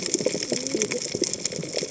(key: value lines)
label: biophony, cascading saw
recorder: HydroMoth